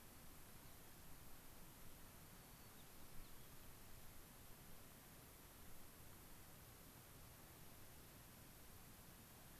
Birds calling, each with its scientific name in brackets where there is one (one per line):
White-crowned Sparrow (Zonotrichia leucophrys)